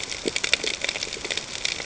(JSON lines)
{"label": "ambient", "recorder": "HydroMoth"}